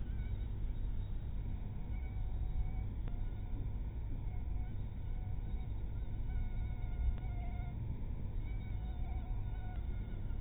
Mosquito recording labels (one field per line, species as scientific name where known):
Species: mosquito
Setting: cup